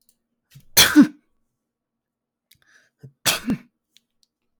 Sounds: Sneeze